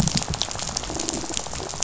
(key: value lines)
label: biophony, rattle
recorder: SoundTrap 500